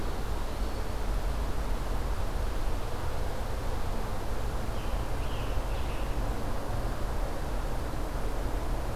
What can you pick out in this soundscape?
Eastern Wood-Pewee, Scarlet Tanager